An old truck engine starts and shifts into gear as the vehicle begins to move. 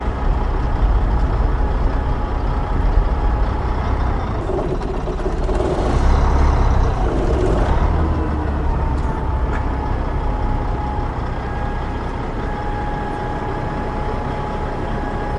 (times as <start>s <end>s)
5.1s 12.3s